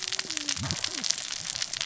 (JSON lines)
{"label": "biophony, cascading saw", "recorder": "SoundTrap 600 or HydroMoth"}